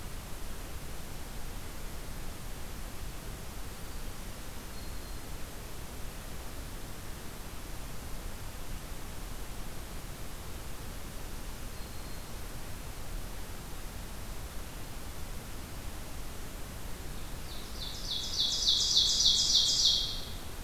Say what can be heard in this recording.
Black-throated Green Warbler, Ovenbird